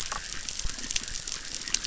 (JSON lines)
{"label": "biophony, chorus", "recorder": "SoundTrap 600"}